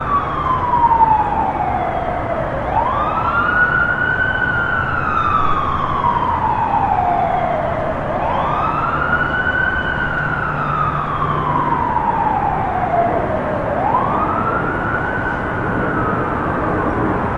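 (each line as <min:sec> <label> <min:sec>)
0:00.0 Sirens wail repeatedly with fluctuating pitch. 0:17.4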